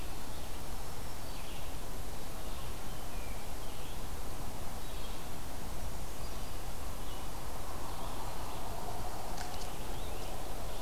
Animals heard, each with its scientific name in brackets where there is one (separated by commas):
Black-throated Green Warbler (Setophaga virens), Brown Creeper (Certhia americana), Red-eyed Vireo (Vireo olivaceus)